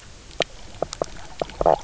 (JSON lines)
{"label": "biophony, knock croak", "recorder": "SoundTrap 300"}